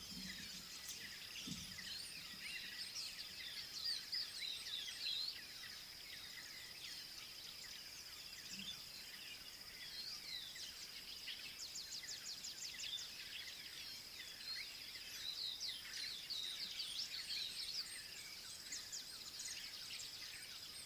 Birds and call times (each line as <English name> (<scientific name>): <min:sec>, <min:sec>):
Pale White-eye (Zosterops flavilateralis): 0:04.2, 0:16.3